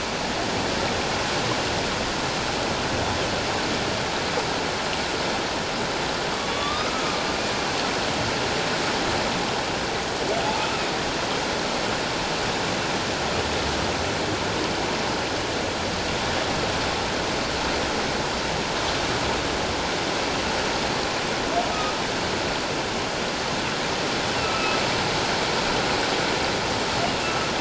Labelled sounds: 6.3	7.2	humpback whale, 1.1 to 3.8 kHz
21.7	21.9	humpback whale, 1.2 to 1.3 kHz
24.4	24.8	humpback whale, 1.2 to 1.4 kHz
27.2	27.5	humpback whale, 1.2 to 1.4 kHz

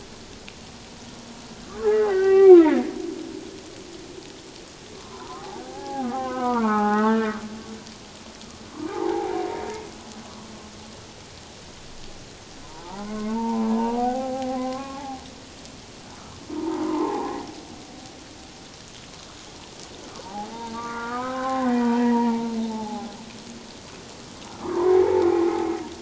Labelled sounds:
1.8	2.8	humpback whale, 0.78 to 2.8 kHz
5.0	7.4	humpback whale, 0.78 to 2.9 kHz
8.7	9.5	humpback whale, 0.78 to 1.3 kHz
12.6	15.1	humpback whale, 0.78 to 1.6 kHz
16.5	17.4	humpback whale, 0.78 to 1.1 kHz
20.2	23.1	humpback whale, 0.78 to 2.0 kHz
24.6	25.7	humpback whale, 0.78 to 1.3 kHz

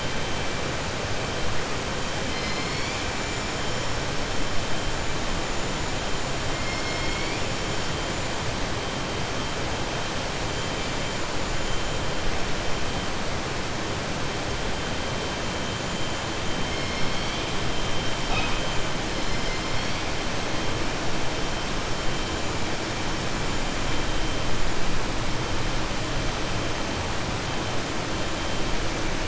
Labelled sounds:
6.5	7.4	killer whale, southern resident, 2.1 to 5.4 kHz

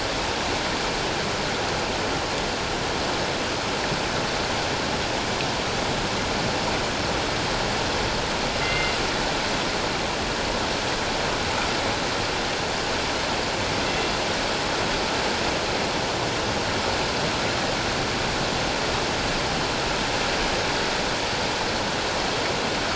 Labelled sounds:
8.6	9.0	killer whale, northern resident, G clan, call N24ii, 2.0 to 2.9 kHz

